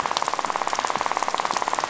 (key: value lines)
label: biophony, rattle
recorder: SoundTrap 500